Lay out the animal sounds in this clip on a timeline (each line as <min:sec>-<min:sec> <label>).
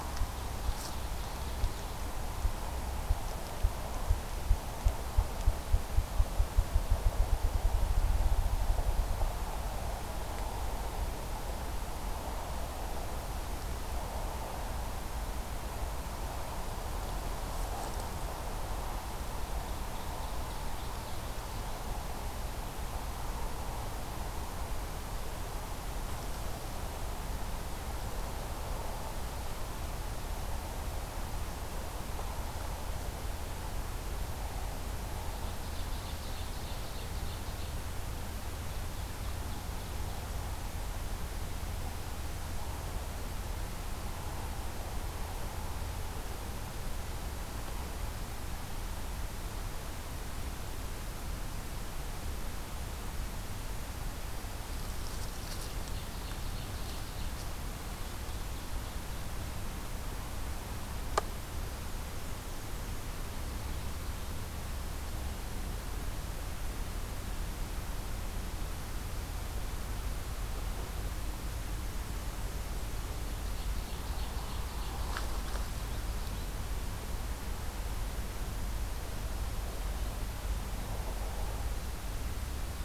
0:00.0-0:02.5 Ovenbird (Seiurus aurocapilla)
0:19.3-0:22.0 Ovenbird (Seiurus aurocapilla)
0:35.2-0:38.0 Ovenbird (Seiurus aurocapilla)
0:38.5-0:40.4 Ovenbird (Seiurus aurocapilla)
0:55.2-0:57.7 Ovenbird (Seiurus aurocapilla)
1:13.4-1:15.9 Ovenbird (Seiurus aurocapilla)